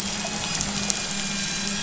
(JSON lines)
{"label": "anthrophony, boat engine", "recorder": "SoundTrap 500"}